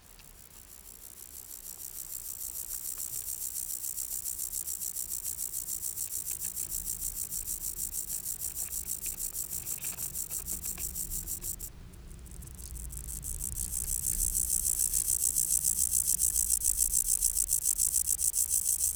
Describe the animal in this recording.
Gomphocerippus rufus, an orthopteran